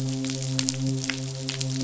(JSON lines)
{"label": "biophony, midshipman", "recorder": "SoundTrap 500"}